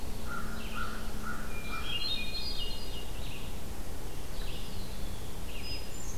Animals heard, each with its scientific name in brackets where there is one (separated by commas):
American Crow (Corvus brachyrhynchos), Eastern Wood-Pewee (Contopus virens), Hermit Thrush (Catharus guttatus), Red-eyed Vireo (Vireo olivaceus)